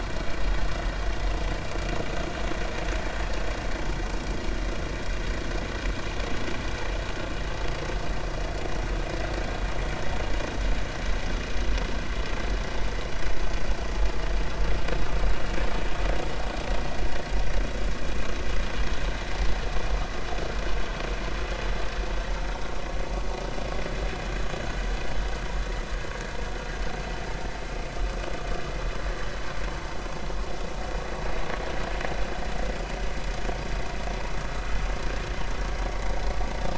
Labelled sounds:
22.0	22.3	vessel noise, 6.2 to 6.3 kHz

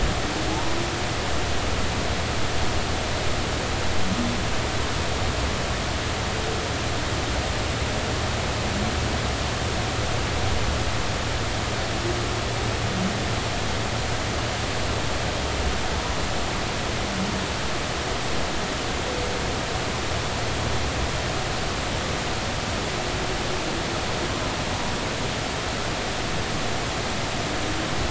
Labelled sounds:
0.5	0.8	humpback whale, 0.80 to 1.0 kHz

